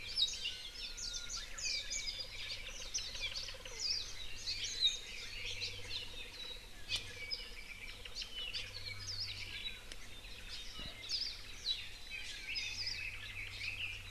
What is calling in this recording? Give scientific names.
Himatione sanguinea, Drepanis coccinea, Horornis diphone, Zosterops japonicus, Leiothrix lutea, Myadestes obscurus, Loxops mana